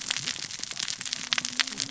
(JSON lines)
{"label": "biophony, cascading saw", "recorder": "SoundTrap 600 or HydroMoth"}